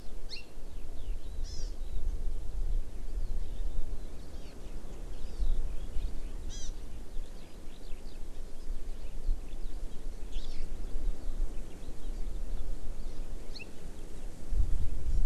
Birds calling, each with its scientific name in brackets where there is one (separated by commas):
Eurasian Skylark (Alauda arvensis), Hawaii Amakihi (Chlorodrepanis virens)